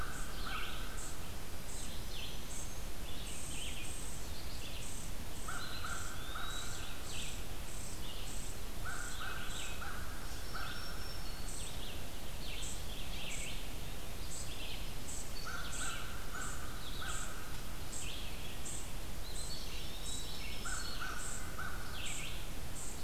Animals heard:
Red-eyed Vireo (Vireo olivaceus)
American Crow (Corvus brachyrhynchos)
Eastern Wood-Pewee (Contopus virens)
unknown mammal
Black-throated Green Warbler (Setophaga virens)

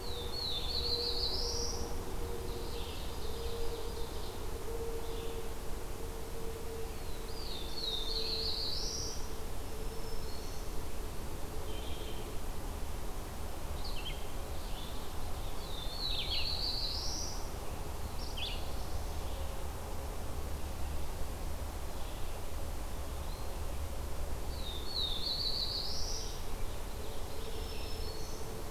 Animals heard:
Red-eyed Vireo (Vireo olivaceus)
Black-throated Green Warbler (Setophaga virens)
Black-throated Blue Warbler (Setophaga caerulescens)
Ovenbird (Seiurus aurocapilla)
Eastern Wood-Pewee (Contopus virens)

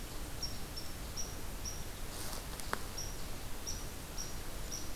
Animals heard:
Red Squirrel (Tamiasciurus hudsonicus)

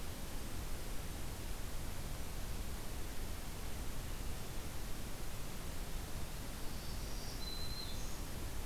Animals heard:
Black-throated Green Warbler (Setophaga virens)

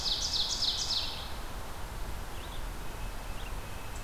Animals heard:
Red-breasted Nuthatch (Sitta canadensis)
Red-eyed Vireo (Vireo olivaceus)
Ovenbird (Seiurus aurocapilla)

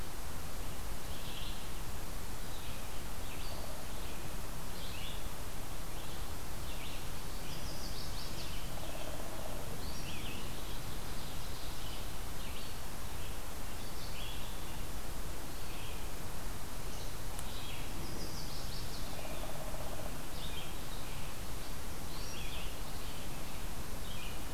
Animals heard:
Red-eyed Vireo (Vireo olivaceus)
Chestnut-sided Warbler (Setophaga pensylvanica)
Ovenbird (Seiurus aurocapilla)

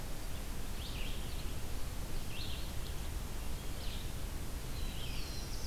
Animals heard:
Black-throated Green Warbler (Setophaga virens)
Black-throated Blue Warbler (Setophaga caerulescens)
Red-eyed Vireo (Vireo olivaceus)

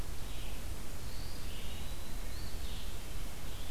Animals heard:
Eastern Wood-Pewee (Contopus virens)
Red-eyed Vireo (Vireo olivaceus)
Eastern Phoebe (Sayornis phoebe)

